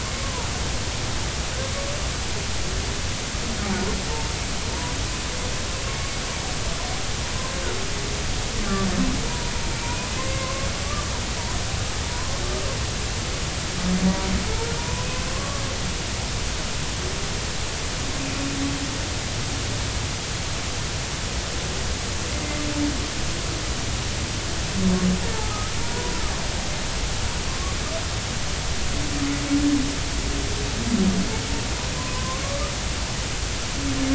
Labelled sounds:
9.3	11.1	humpback whale, 0.90 to 2.5 kHz
14.1	15.1	humpback whale, 0.90 to 1.1 kHz
15.3	15.6	humpback whale, 1.0 to 1.2 kHz
22.3	22.6	humpback whale, 2.0 to 2.1 kHz
25.3	26.1	humpback whale, 0.80 to 1.3 kHz
28.5	28.8	humpback whale, 1.0 to 1.2 kHz
32.0	32.4	humpback whale, 0.96 to 1.1 kHz

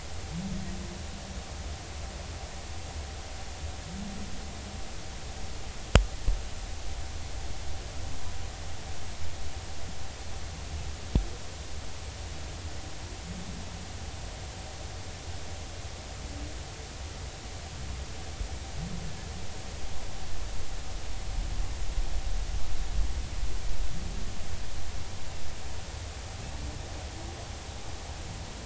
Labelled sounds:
19.0	19.3	humpback whale, 1.7 to 1.8 kHz

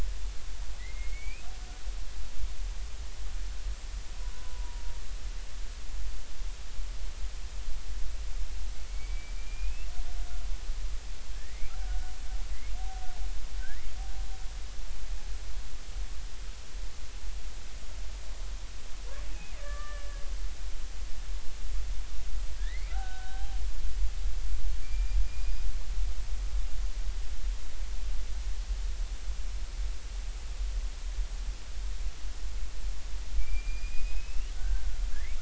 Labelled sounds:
0.8	1.5	killer whale, Bigg's (transient), 1.9 to 2.7 kHz
4.3	4.8	killer whale, Bigg's (transient), 0.90 to 1.1 kHz
8.9	9.9	killer whale, Bigg's (transient), 2.1 to 2.8 kHz
11.4	12.1	killer whale, Bigg's (transient), 1.4 to 2.5 kHz
13.6	13.9	killer whale, Bigg's (transient), 1.4 to 2.3 kHz
19.6	20.2	killer whale, Bigg's (transient), 1.1 to 1.8 kHz
22.6	23.6	killer whale, Bigg's (transient), 0.80 to 2.5 kHz
24.8	25.5	killer whale, Bigg's (transient), 2.3 to 2.5 kHz
33.4	34.9	killer whale, Bigg's (transient), 1.4 to 5.1 kHz

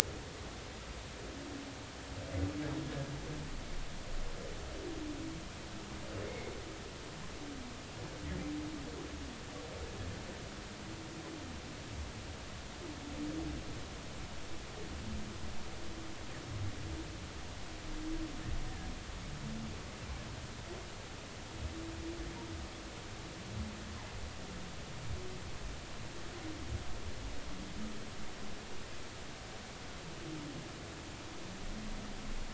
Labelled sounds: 6.2	6.5	humpback whale, 2.0 to 2.3 kHz

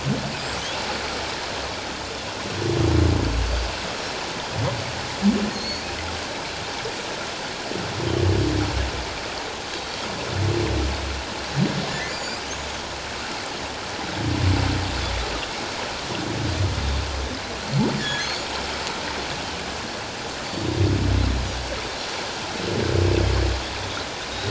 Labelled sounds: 5.5	5.8	humpback whale, 4.2 to 6.7 kHz
11.9	12.4	humpback whale, 1.7 to 5.0 kHz
18.0	18.4	humpback whale, 1.6 to 4.6 kHz

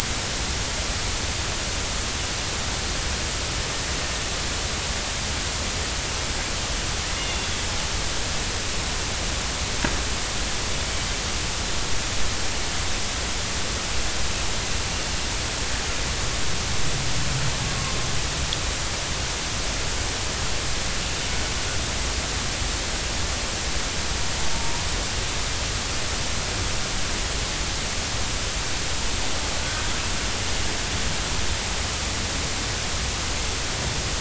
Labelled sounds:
7.2	7.6	killer whale, Bigg's (transient), 2.7 to 3.6 kHz
24.5	24.8	killer whale, Bigg's (transient), 0.86 to 0.99 kHz

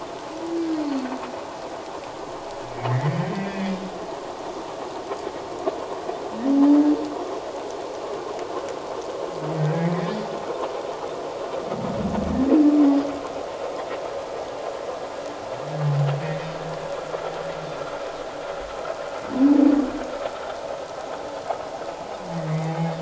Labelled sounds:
2.9	3.7	humpback whale, 1.7 to 2.0 kHz
9.5	10.0	humpback whale, 1.8 to 2.3 kHz
22.3	22.6	humpback whale, 1.8 to 2.0 kHz

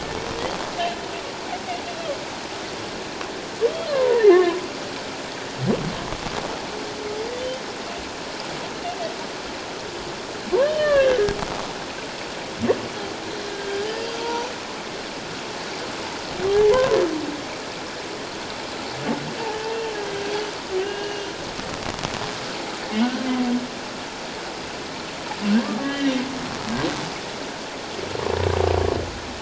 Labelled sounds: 3.9	4.6	humpback whale, 0.91 to 2.2 kHz
10.6	11.2	humpback whale, 1.1 to 3.1 kHz
13.3	14.5	humpback whale, 0.84 to 5.0 kHz
16.7	17.0	humpback whale, 0.94 to 1.1 kHz
20.8	21.3	humpback whale, 1.5 to 2.9 kHz
23.0	23.3	humpback whale, 1.4 to 1.6 kHz
25.8	26.1	humpback whale, 1.6 to 3.2 kHz

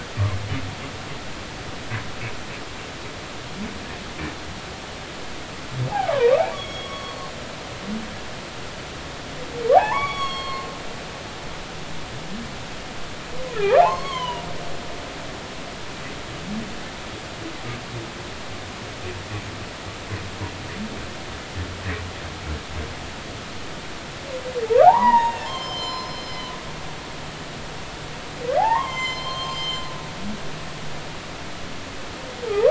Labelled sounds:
5.9	7.3	humpback whale, 0.80 to 6.7 kHz
9.7	10.7	humpback whale, 0.80 to 8.0 kHz
13.5	14.5	humpback whale, 0.80 to 4.5 kHz
24.8	26.5	humpback whale, 0.80 to 7.3 kHz
28.6	29.8	humpback whale, 0.80 to 7.4 kHz

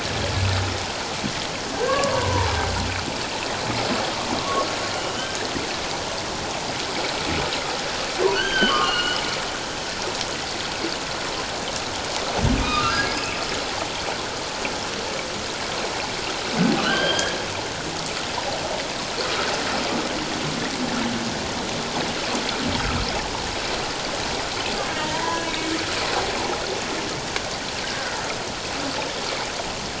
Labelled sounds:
1.7	2.5	humpback whale, 0.81 to 1.8 kHz
4.4	5.4	humpback whale, 1.0 to 3.2 kHz
8.3	9.2	humpback whale, 1.0 to 3.2 kHz
12.5	13.2	humpback whale, 1.2 to 2.7 kHz
16.8	17.4	humpback whale, 1.3 to 3.4 kHz
25.0	25.7	humpback whale, 0.81 to 2.8 kHz
27.8	28.2	humpback whale, 1.4 to 1.7 kHz

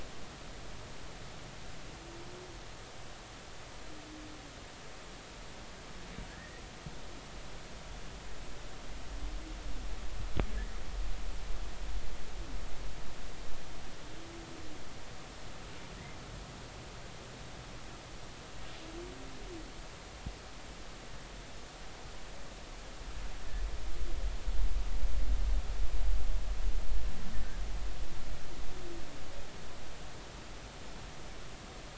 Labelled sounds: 6.3	6.6	humpback whale, 1.6 to 2.1 kHz

